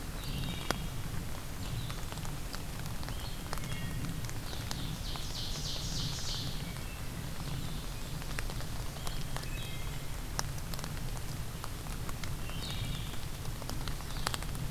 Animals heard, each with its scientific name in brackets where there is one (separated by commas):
Wood Thrush (Hylocichla mustelina), Blue-headed Vireo (Vireo solitarius), Ovenbird (Seiurus aurocapilla)